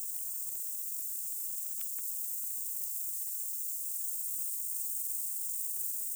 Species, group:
Stauroderus scalaris
Orthoptera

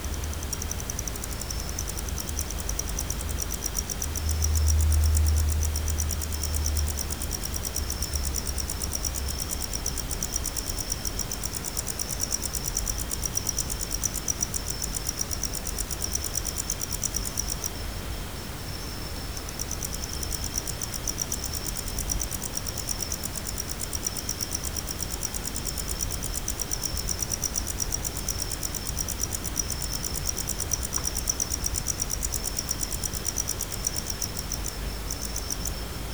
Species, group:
Gryllodes sigillatus
Orthoptera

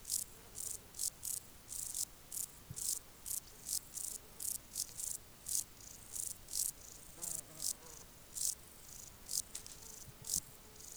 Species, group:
Euchorthippus elegantulus
Orthoptera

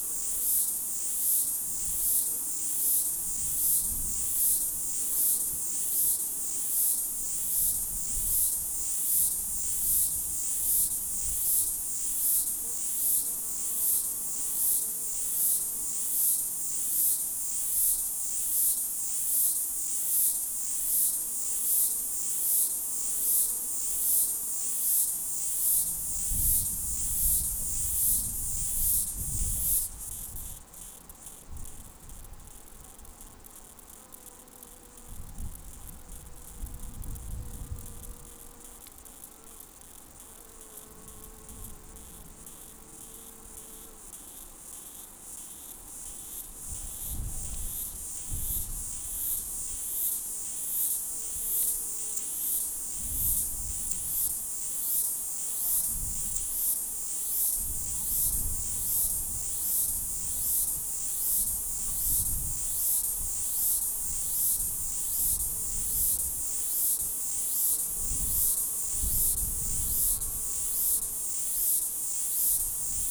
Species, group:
Stenobothrus lineatus
Orthoptera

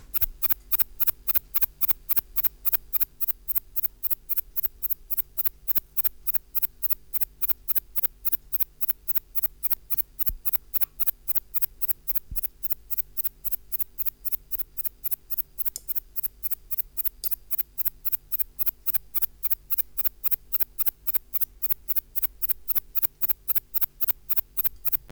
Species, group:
Platycleis intermedia
Orthoptera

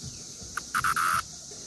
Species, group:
Magicicada neotredecim
Cicadidae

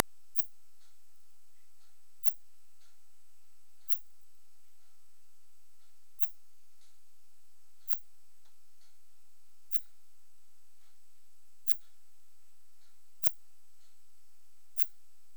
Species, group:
Phaneroptera falcata
Orthoptera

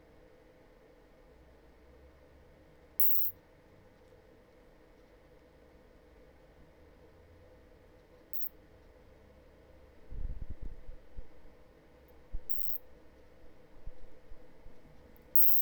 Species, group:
Isophya obtusa
Orthoptera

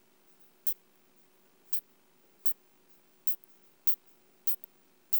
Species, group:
Isophya pyrenaea
Orthoptera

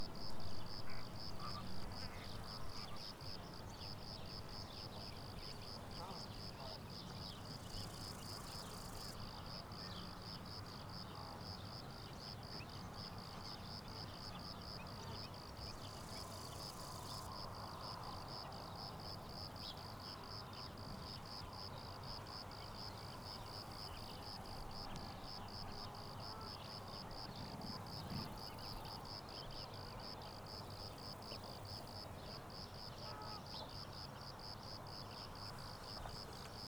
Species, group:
Eumodicogryllus bordigalensis
Orthoptera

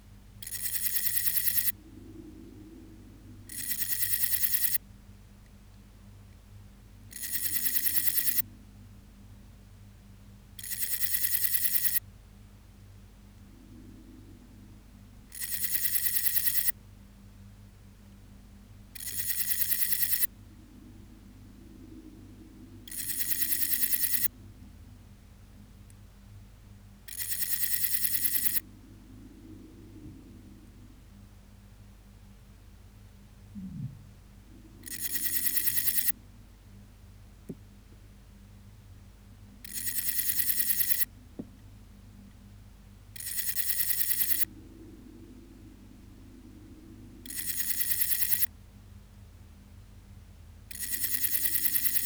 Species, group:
Parnassiana chelmos
Orthoptera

